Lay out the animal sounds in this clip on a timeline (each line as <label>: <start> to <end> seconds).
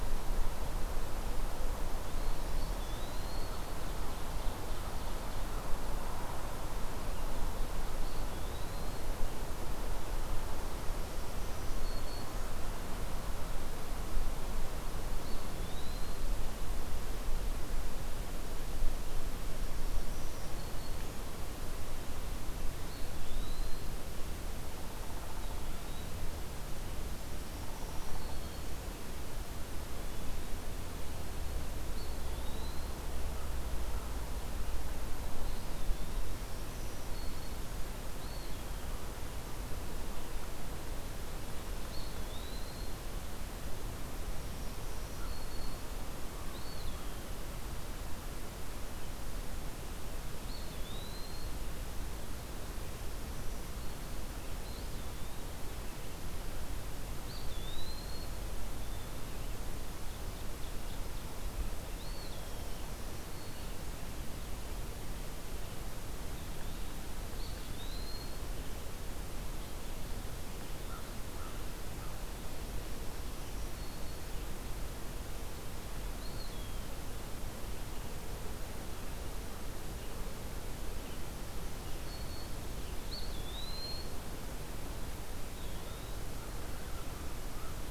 Eastern Wood-Pewee (Contopus virens): 1.9 to 3.8 seconds
Ovenbird (Seiurus aurocapilla): 3.7 to 5.5 seconds
Eastern Wood-Pewee (Contopus virens): 7.9 to 9.1 seconds
Black-throated Green Warbler (Setophaga virens): 10.9 to 12.5 seconds
Eastern Wood-Pewee (Contopus virens): 15.1 to 16.3 seconds
Black-throated Green Warbler (Setophaga virens): 19.6 to 21.3 seconds
Eastern Wood-Pewee (Contopus virens): 22.7 to 23.9 seconds
Eastern Wood-Pewee (Contopus virens): 25.2 to 26.2 seconds
Black-throated Green Warbler (Setophaga virens): 27.4 to 28.9 seconds
Downy Woodpecker (Dryobates pubescens): 27.5 to 28.4 seconds
Eastern Wood-Pewee (Contopus virens): 31.8 to 32.9 seconds
Eastern Wood-Pewee (Contopus virens): 35.3 to 36.4 seconds
Black-throated Green Warbler (Setophaga virens): 36.4 to 37.8 seconds
Eastern Wood-Pewee (Contopus virens): 38.1 to 38.8 seconds
Eastern Wood-Pewee (Contopus virens): 41.8 to 42.8 seconds
Black-throated Green Warbler (Setophaga virens): 44.3 to 45.9 seconds
American Crow (Corvus brachyrhynchos): 45.0 to 47.2 seconds
Eastern Wood-Pewee (Contopus virens): 46.5 to 47.3 seconds
Eastern Wood-Pewee (Contopus virens): 50.4 to 51.6 seconds
Eastern Wood-Pewee (Contopus virens): 54.5 to 55.6 seconds
Eastern Wood-Pewee (Contopus virens): 57.2 to 58.4 seconds
Ovenbird (Seiurus aurocapilla): 59.8 to 61.2 seconds
Eastern Wood-Pewee (Contopus virens): 61.8 to 62.7 seconds
Black-throated Green Warbler (Setophaga virens): 62.6 to 64.1 seconds
Eastern Wood-Pewee (Contopus virens): 66.2 to 68.5 seconds
American Crow (Corvus brachyrhynchos): 70.8 to 72.1 seconds
Black-throated Green Warbler (Setophaga virens): 73.2 to 74.4 seconds
Eastern Wood-Pewee (Contopus virens): 76.1 to 77.0 seconds
Black-throated Green Warbler (Setophaga virens): 81.2 to 82.6 seconds
Eastern Wood-Pewee (Contopus virens): 83.0 to 84.2 seconds
Eastern Wood-Pewee (Contopus virens): 85.4 to 86.3 seconds
American Crow (Corvus brachyrhynchos): 85.7 to 87.9 seconds